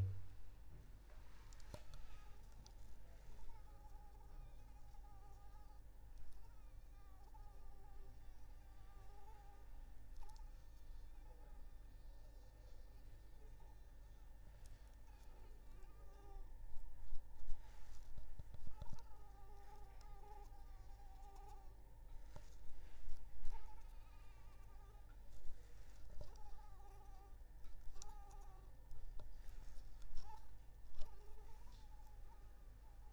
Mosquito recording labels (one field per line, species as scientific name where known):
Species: Anopheles arabiensis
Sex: female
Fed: unfed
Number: one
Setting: cup